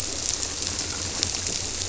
{"label": "biophony", "recorder": "SoundTrap 300"}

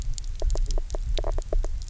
{"label": "biophony, knock croak", "recorder": "SoundTrap 300"}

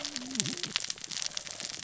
{"label": "biophony, cascading saw", "recorder": "SoundTrap 600 or HydroMoth"}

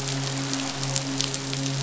{"label": "biophony, midshipman", "recorder": "SoundTrap 500"}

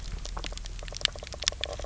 {"label": "biophony, knock croak", "recorder": "SoundTrap 300"}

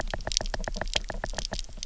{"label": "biophony, knock", "recorder": "SoundTrap 300"}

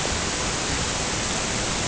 {"label": "ambient", "recorder": "HydroMoth"}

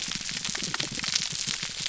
{"label": "biophony, pulse", "recorder": "SoundTrap 300"}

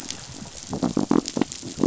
{"label": "biophony", "recorder": "SoundTrap 500"}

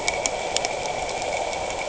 {"label": "anthrophony, boat engine", "recorder": "HydroMoth"}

